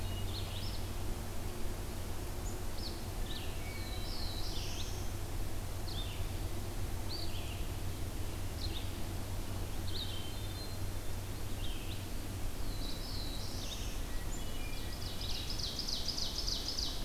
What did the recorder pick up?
Red-eyed Vireo, Black-throated Blue Warbler, Hermit Thrush, Ovenbird